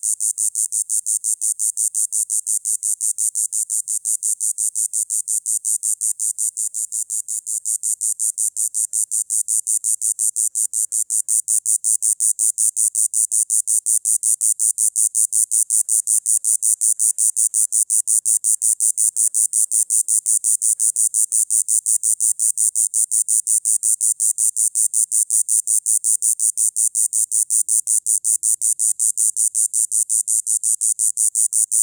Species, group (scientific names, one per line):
Diceroprocta texana
Cicadidae